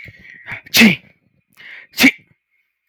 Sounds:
Sneeze